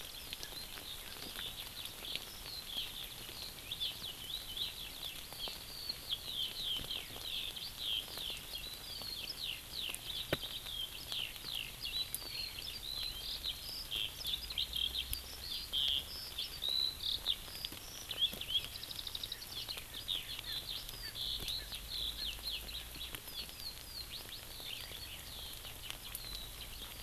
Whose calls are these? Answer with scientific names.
Alauda arvensis, Pternistis erckelii